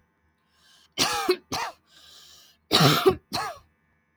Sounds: Cough